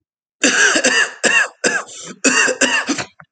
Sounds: Cough